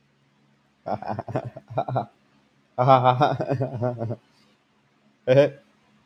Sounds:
Laughter